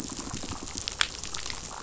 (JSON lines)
{"label": "biophony, rattle response", "recorder": "SoundTrap 500"}